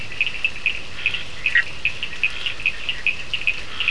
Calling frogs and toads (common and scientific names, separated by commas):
Scinax perereca, Cochran's lime tree frog (Sphaenorhynchus surdus), Bischoff's tree frog (Boana bischoffi)